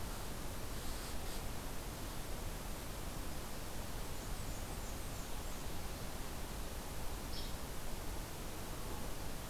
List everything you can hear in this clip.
Blackburnian Warbler, Hairy Woodpecker